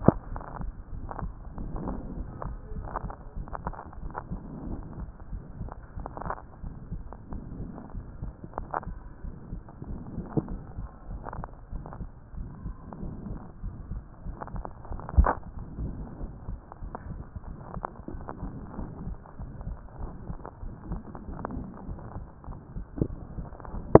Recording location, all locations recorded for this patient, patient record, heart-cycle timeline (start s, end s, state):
pulmonary valve (PV)
aortic valve (AV)+pulmonary valve (PV)+tricuspid valve (TV)+mitral valve (MV)
#Age: Child
#Sex: Female
#Height: 150.0 cm
#Weight: 49.7 kg
#Pregnancy status: False
#Murmur: Present
#Murmur locations: tricuspid valve (TV)
#Most audible location: tricuspid valve (TV)
#Systolic murmur timing: Holosystolic
#Systolic murmur shape: Plateau
#Systolic murmur grading: I/VI
#Systolic murmur pitch: Medium
#Systolic murmur quality: Blowing
#Diastolic murmur timing: nan
#Diastolic murmur shape: nan
#Diastolic murmur grading: nan
#Diastolic murmur pitch: nan
#Diastolic murmur quality: nan
#Outcome: Abnormal
#Campaign: 2014 screening campaign
0.00	2.05	unannotated
2.05	2.16	diastole
2.16	2.28	S1
2.28	2.44	systole
2.44	2.54	S2
2.54	2.76	diastole
2.76	2.88	S1
2.88	3.02	systole
3.02	3.12	S2
3.12	3.36	diastole
3.36	3.47	S1
3.47	3.64	systole
3.64	3.74	S2
3.74	4.02	diastole
4.02	4.12	S1
4.12	4.30	systole
4.30	4.40	S2
4.40	4.66	diastole
4.66	4.77	S1
4.77	4.98	systole
4.98	5.08	S2
5.08	5.32	diastole
5.32	5.42	S1
5.42	5.60	systole
5.60	5.70	S2
5.70	5.96	diastole
5.96	6.06	S1
6.06	6.24	systole
6.24	6.34	S2
6.34	6.64	diastole
6.64	6.74	S1
6.74	6.90	systole
6.90	7.02	S2
7.02	7.32	diastole
7.32	7.44	S1
7.44	7.58	systole
7.58	7.70	S2
7.70	7.96	diastole
7.96	8.06	S1
8.06	8.22	systole
8.22	8.34	S2
8.34	8.58	diastole
8.58	8.68	S1
8.68	8.86	systole
8.86	8.98	S2
8.98	9.24	diastole
9.24	9.34	S1
9.34	9.50	systole
9.50	9.62	S2
9.62	9.88	diastole
9.88	10.00	S1
10.00	10.14	systole
10.14	10.26	S2
10.26	10.48	diastole
10.48	10.62	S1
10.62	10.78	systole
10.78	10.88	S2
10.88	11.10	diastole
11.10	11.22	S1
11.22	11.36	systole
11.36	11.46	S2
11.46	11.72	diastole
11.72	11.84	S1
11.84	11.98	systole
11.98	12.08	S2
12.08	12.36	diastole
12.36	12.50	S1
12.50	12.64	systole
12.64	12.74	S2
12.74	13.02	diastole
13.02	13.14	S1
13.14	13.28	systole
13.28	13.38	S2
13.38	13.64	diastole
13.64	13.74	S1
13.74	13.90	systole
13.90	14.02	S2
14.02	14.26	diastole
14.26	14.36	S1
14.36	14.54	systole
14.54	14.64	S2
14.64	14.90	diastole
14.90	24.00	unannotated